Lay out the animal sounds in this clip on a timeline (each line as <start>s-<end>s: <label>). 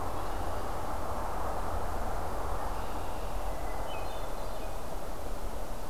0.0s-0.7s: Red-winged Blackbird (Agelaius phoeniceus)
2.5s-3.5s: Red-winged Blackbird (Agelaius phoeniceus)
3.6s-4.7s: Hermit Thrush (Catharus guttatus)